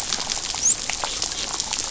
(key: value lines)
label: biophony, dolphin
recorder: SoundTrap 500